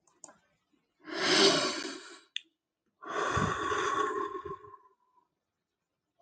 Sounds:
Sigh